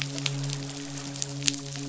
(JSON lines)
{"label": "biophony, midshipman", "recorder": "SoundTrap 500"}